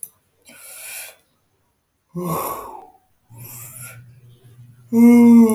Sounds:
Sigh